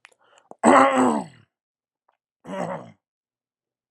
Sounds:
Throat clearing